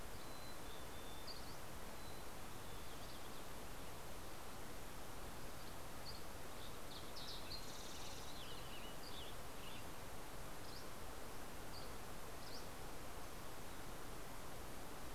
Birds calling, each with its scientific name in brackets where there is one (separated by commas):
Dusky Flycatcher (Empidonax oberholseri), Fox Sparrow (Passerella iliaca), Western Tanager (Piranga ludoviciana), Mountain Chickadee (Poecile gambeli)